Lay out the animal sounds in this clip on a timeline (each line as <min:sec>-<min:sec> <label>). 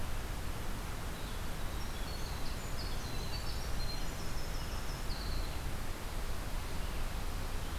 0:00.8-0:05.6 Winter Wren (Troglodytes hiemalis)